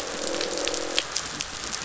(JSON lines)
{"label": "biophony, croak", "recorder": "SoundTrap 500"}